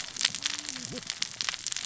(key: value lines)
label: biophony, cascading saw
recorder: SoundTrap 600 or HydroMoth